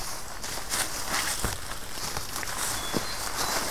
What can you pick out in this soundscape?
Hermit Thrush